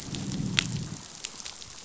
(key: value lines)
label: biophony, growl
recorder: SoundTrap 500